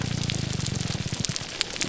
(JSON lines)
{"label": "biophony, grouper groan", "recorder": "SoundTrap 300"}